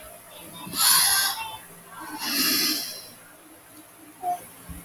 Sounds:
Sigh